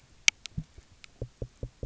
{"label": "biophony, knock", "recorder": "SoundTrap 300"}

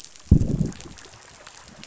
{"label": "biophony, growl", "recorder": "SoundTrap 500"}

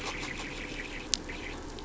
{"label": "anthrophony, boat engine", "recorder": "SoundTrap 500"}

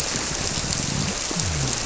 {"label": "biophony", "recorder": "SoundTrap 300"}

